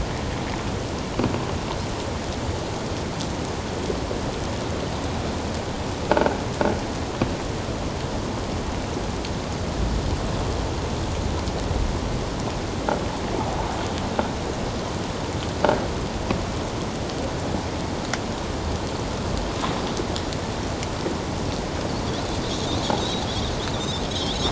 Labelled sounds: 6.1	6.4	croaking sound likely from a nearby submerged object, 1.4 to 1.6 kHz
23.0	24.4	Pacific white-sided dolphin, 3.1 to 5.5 kHz

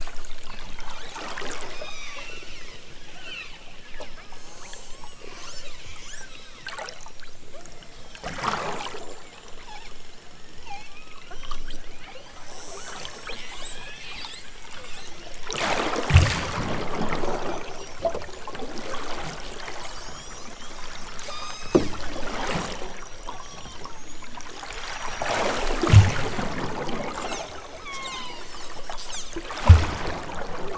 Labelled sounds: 1.7	3.6	killer whale, southern Alaska resident, 0.42 to 7.7 kHz
4.3	6.5	killer whale, southern Alaska resident, 0.69 to 8.0 kHz
7.5	8.3	killer whale, southern Alaska resident, 1.6 to 6.7 kHz
9.6	10.0	killer whale, southern Alaska resident, 0.60 to 8.0 kHz
10.6	11.0	killer whale, southern Alaska resident, 0.46 to 8.0 kHz
11.4	14.1	killer whale, southern Alaska resident, 0.74 to 8.0 kHz
19.7	20.5	killer whale, southern Alaska resident, 2.5 to 7.8 kHz
21.2	21.8	killer whale, southern Alaska resident, 0.69 to 8.0 kHz
23.2	24.1	killer whale, southern Alaska resident, 0.51 to 3.9 kHz
27.0	27.5	killer whale, southern Alaska resident, 1.3 to 8.0 kHz
27.8	28.5	killer whale, southern Alaska resident, 0.42 to 8.0 kHz
28.9	29.4	killer whale, southern Alaska resident, 2.2 to 8.0 kHz

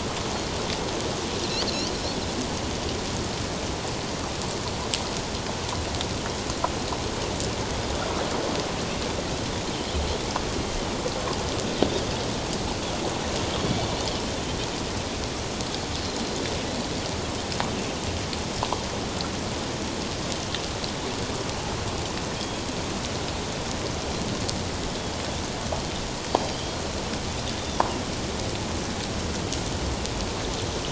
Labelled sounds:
1.4	1.7	Pacific white-sided dolphin, 3.9 to 4.7 kHz
22.3	22.6	Pacific white-sided dolphin, 3.2 to 3.4 kHz
26.3	26.6	Pacific white-sided dolphin, 4.6 to 4.9 kHz
27.6	27.8	Pacific white-sided dolphin, 3.3 to 3.6 kHz

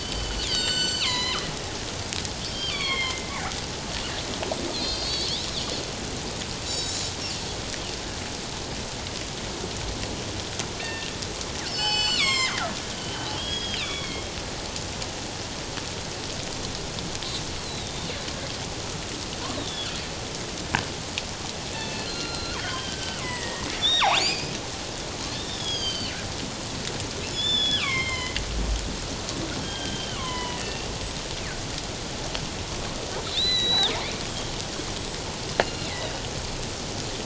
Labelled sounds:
0.0	1.5	killer whale, northern resident, G clan, 0.91 to 7.7 kHz
2.4	3.3	killer whale, northern resident, G clan, 1.0 to 5.5 kHz
4.7	5.3	killer whale, northern resident, G clan, 3.6 to 4.9 kHz
6.7	7.0	killer whale, northern resident, G clan, 3.8 to 7.1 kHz
10.8	11.1	killer whale, northern resident, G clan, 1.8 to 2.9 kHz
11.7	12.7	killer whale, northern resident, G clan, 0.78 to 7.8 kHz
13.0	14.3	killer whale, northern resident, G clan, 2.1 to 5.0 kHz
17.6	18.1	killer whale, northern resident, G clan, 3.5 to 4.5 kHz
19.6	19.9	killer whale, northern resident, G clan, 3.2 to 3.9 kHz
21.7	24.6	killer whale, northern resident, G clan, 0.78 to 7.9 kHz
25.4	26.1	killer whale, northern resident, G clan, 2.6 to 6.8 kHz
27.2	28.4	killer whale, northern resident, G clan, 1.0 to 7.1 kHz
29.6	30.9	killer whale, northern resident, G clan, 0.88 to 3.3 kHz
33.3	33.9	killer whale, northern resident, G clan, 1.9 to 7.3 kHz
35.6	35.9	killer whale, northern resident, G clan, 2.6 to 3.0 kHz

